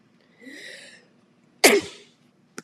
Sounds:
Sneeze